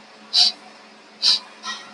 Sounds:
Sniff